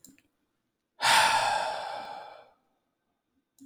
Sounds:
Sigh